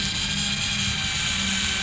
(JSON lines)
{"label": "anthrophony, boat engine", "recorder": "SoundTrap 500"}